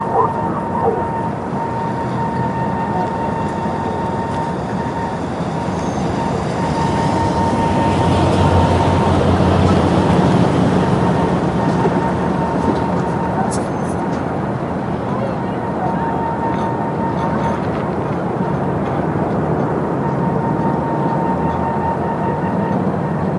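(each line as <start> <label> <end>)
0.0 A trembling whistling sound. 23.4
0.0 Noise. 23.4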